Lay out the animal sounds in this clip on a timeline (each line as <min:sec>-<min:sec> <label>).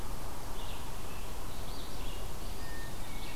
0:00.0-0:03.4 Red-eyed Vireo (Vireo olivaceus)
0:02.5-0:03.4 Hermit Thrush (Catharus guttatus)